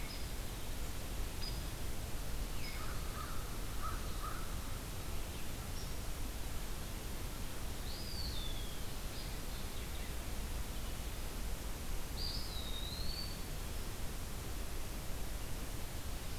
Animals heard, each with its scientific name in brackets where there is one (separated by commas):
Eastern Wood-Pewee (Contopus virens), American Crow (Corvus brachyrhynchos), Hairy Woodpecker (Dryobates villosus)